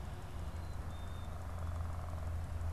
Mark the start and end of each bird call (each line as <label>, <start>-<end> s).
Black-capped Chickadee (Poecile atricapillus), 0.4-1.5 s